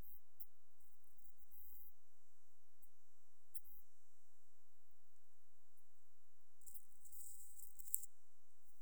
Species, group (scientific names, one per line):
Steropleurus andalusius
Orthoptera